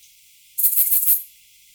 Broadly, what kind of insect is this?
orthopteran